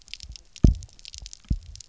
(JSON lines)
{"label": "biophony, double pulse", "recorder": "SoundTrap 300"}